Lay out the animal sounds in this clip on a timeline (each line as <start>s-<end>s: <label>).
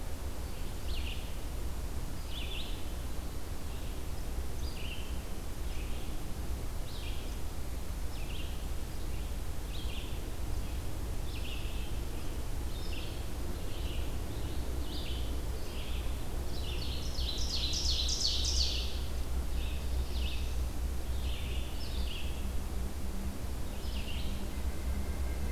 0.0s-14.3s: Red-eyed Vireo (Vireo olivaceus)
14.7s-24.6s: Red-eyed Vireo (Vireo olivaceus)
16.4s-19.0s: Ovenbird (Seiurus aurocapilla)
19.4s-20.8s: Black-throated Blue Warbler (Setophaga caerulescens)